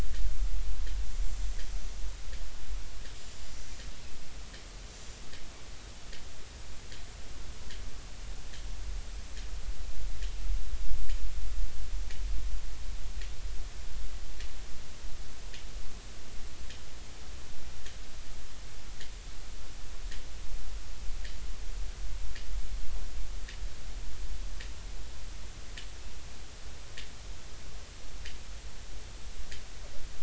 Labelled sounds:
3.2	3.4	killer whale, Bigg's (transient), 6.9 to 7.1 kHz

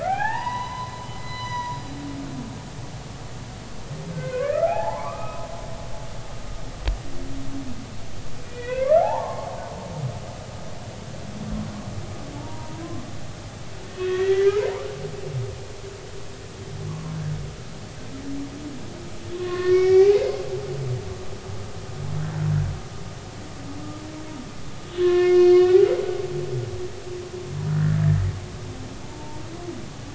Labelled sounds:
0.0	1.8	humpback whale, 0.80 to 6.0 kHz
4.1	5.5	humpback whale, 0.80 to 2.6 kHz
8.4	9.5	humpback whale, 0.80 to 3.5 kHz
12.4	12.8	humpback whale, 0.83 to 0.99 kHz
14.4	15.5	humpback whale, 1.8 to 2.5 kHz
16.9	17.2	humpback whale, 0.96 to 1.2 kHz
19.3	20.4	humpback whale, 1.0 to 5.7 kHz
20.9	21.2	humpback whale, 0.80 to 0.86 kHz
25.0	25.9	humpback whale, 1.0 to 4.7 kHz
29.0	29.4	humpback whale, 0.83 to 0.99 kHz

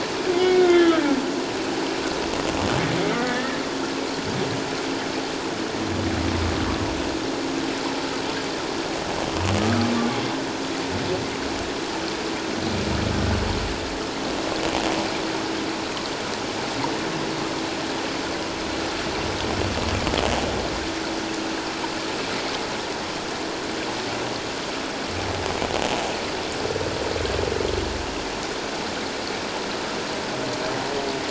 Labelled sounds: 3.0	3.6	humpback whale, 1.7 to 2.2 kHz

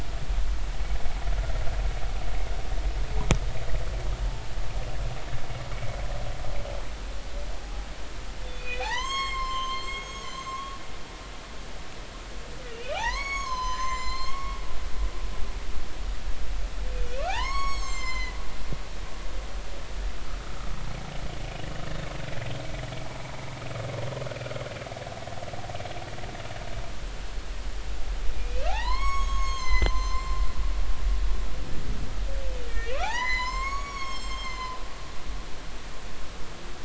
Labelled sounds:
8.5	10.8	humpback whale, 0.80 to 7.6 kHz
12.9	14.6	humpback whale, 0.80 to 7.9 kHz
16.9	18.4	humpback whale, 0.80 to 7.8 kHz
28.3	30.4	humpback whale, 0.80 to 7.8 kHz
32.7	34.8	humpback whale, 0.80 to 7.9 kHz

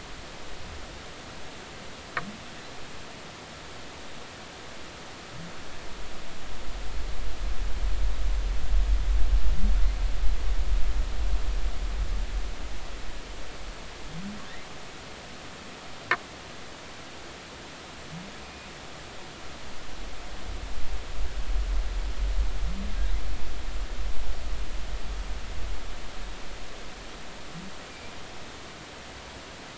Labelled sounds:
18.4	18.7	humpback whale, 2.4 to 2.5 kHz

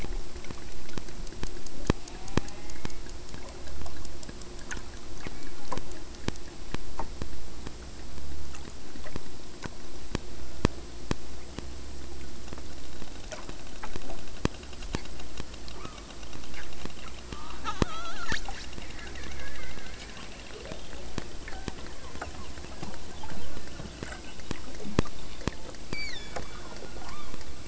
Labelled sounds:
1.7	3.1	killer whale, southern Alaska resident, 0.39 to 4.5 kHz
15.7	16.1	killer whale, southern Alaska resident, 0.70 to 2.8 kHz
17.0	18.5	killer whale, southern Alaska resident, 0.33 to 8.0 kHz
25.9	27.4	killer whale, southern Alaska resident, 0.54 to 7.4 kHz

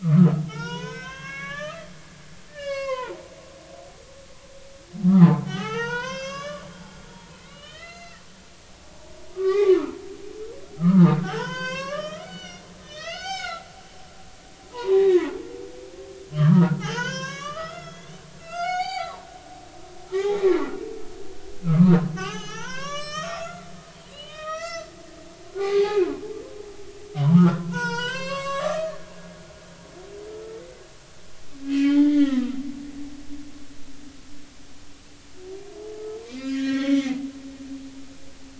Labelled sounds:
0.0	1.9	humpback whale, 0.83 to 6.4 kHz
2.5	3.2	humpback whale, 0.86 to 5.7 kHz
5.2	8.2	humpback whale, 0.80 to 6.6 kHz
9.3	10.0	humpback whale, 0.93 to 2.5 kHz
10.8	15.3	humpback whale, 0.80 to 6.9 kHz
16.3	19.3	humpback whale, 0.80 to 7.0 kHz
20.2	20.5	humpback whale, 0.80 to 0.93 kHz
21.6	23.7	humpback whale, 0.80 to 7.9 kHz
24.1	24.9	humpback whale, 1.2 to 6.2 kHz
25.6	26.0	humpback whale, 1.0 to 4.7 kHz
27.1	29.1	humpback whale, 0.83 to 7.8 kHz
30.3	30.6	humpback whale, 1.3 to 1.4 kHz
31.6	32.6	humpback whale, 1.2 to 3.7 kHz
32.8	33.1	humpback whale, 1.4 to 1.5 kHz
36.3	37.3	humpback whale, 1.0 to 5.5 kHz

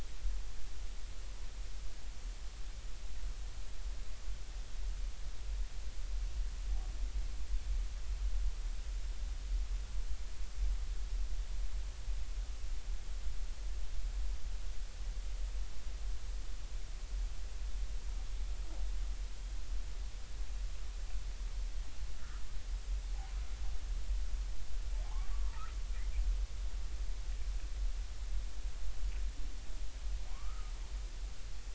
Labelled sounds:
22.2	22.4	humpback whale, 1.2 to 1.6 kHz
25.1	25.3	humpback whale, 0.80 to 1.2 kHz
30.3	30.7	humpback whale, 0.90 to 1.4 kHz

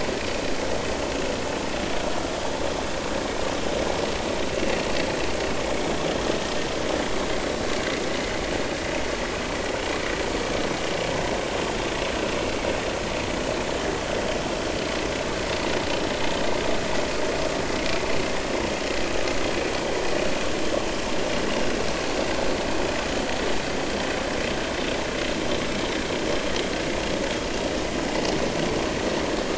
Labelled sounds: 4.6	4.8	vessel noise, 2.6 to 2.8 kHz

